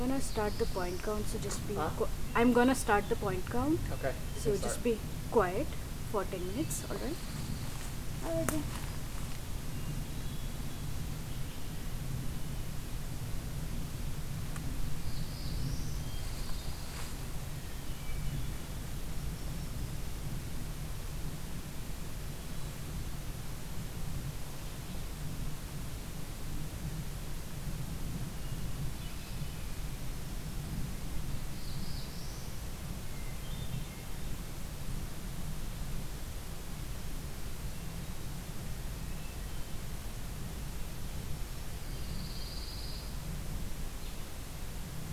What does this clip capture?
Black-throated Blue Warbler, Hermit Thrush, Pine Warbler, Black-throated Green Warbler